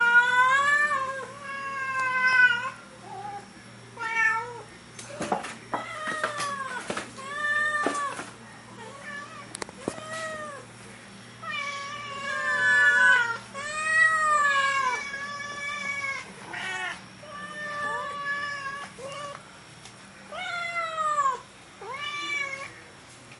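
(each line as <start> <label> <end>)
0.0 A cat meows twice. 2.8
3.9 A cat meows. 4.8
4.9 Footsteps of a person walking. 7.1
7.1 A cat meows. 8.3
8.9 A cat meows twice. 11.0
11.3 Multiple cats meow loudly. 17.1
17.3 A cat meows. 22.8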